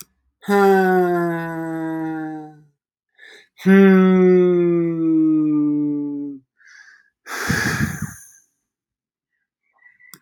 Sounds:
Sigh